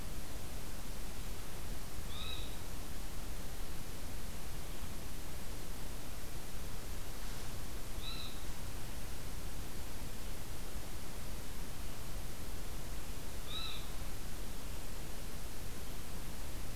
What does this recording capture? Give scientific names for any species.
unidentified call